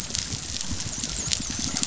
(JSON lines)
{"label": "biophony, dolphin", "recorder": "SoundTrap 500"}